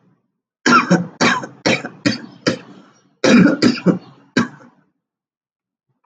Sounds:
Cough